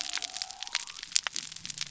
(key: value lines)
label: biophony
recorder: SoundTrap 300